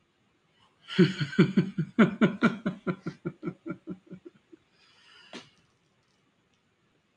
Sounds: Laughter